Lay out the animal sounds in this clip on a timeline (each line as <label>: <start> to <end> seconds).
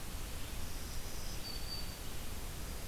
Black-throated Green Warbler (Setophaga virens): 0.3 to 2.3 seconds